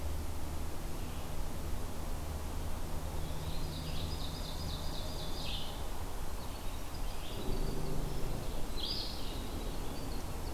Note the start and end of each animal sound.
3.5s-5.8s: Ovenbird (Seiurus aurocapilla)
6.1s-10.5s: Winter Wren (Troglodytes hiemalis)
8.6s-10.5s: Red-eyed Vireo (Vireo olivaceus)

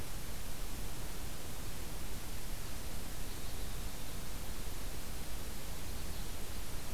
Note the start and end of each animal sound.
2.5s-6.7s: Red Crossbill (Loxia curvirostra)

